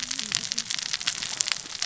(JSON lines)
{"label": "biophony, cascading saw", "recorder": "SoundTrap 600 or HydroMoth"}